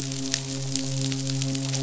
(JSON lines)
{"label": "biophony, midshipman", "recorder": "SoundTrap 500"}